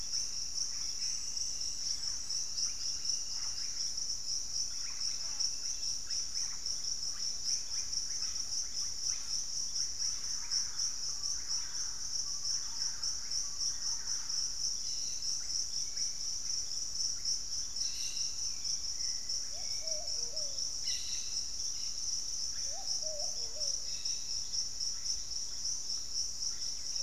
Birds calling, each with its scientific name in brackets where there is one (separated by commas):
Thrush-like Wren (Campylorhynchus turdinus), Hauxwell's Thrush (Turdus hauxwelli), unidentified bird, Cobalt-winged Parakeet (Brotogeris cyanoptera), Russet-backed Oropendola (Psarocolius angustifrons)